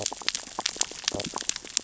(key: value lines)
label: biophony, stridulation
recorder: SoundTrap 600 or HydroMoth

label: biophony, sea urchins (Echinidae)
recorder: SoundTrap 600 or HydroMoth